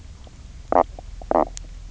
{"label": "biophony, knock croak", "recorder": "SoundTrap 300"}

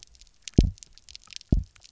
{"label": "biophony, double pulse", "recorder": "SoundTrap 300"}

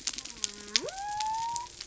{"label": "biophony", "recorder": "SoundTrap 300"}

